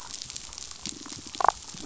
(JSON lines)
{"label": "biophony, damselfish", "recorder": "SoundTrap 500"}
{"label": "biophony", "recorder": "SoundTrap 500"}